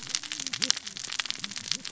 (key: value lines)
label: biophony, cascading saw
recorder: SoundTrap 600 or HydroMoth